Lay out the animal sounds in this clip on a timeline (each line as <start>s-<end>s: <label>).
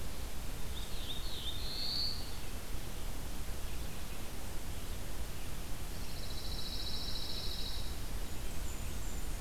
0.6s-2.3s: Black-throated Blue Warbler (Setophaga caerulescens)
5.8s-8.0s: Pine Warbler (Setophaga pinus)
7.9s-9.4s: Blackburnian Warbler (Setophaga fusca)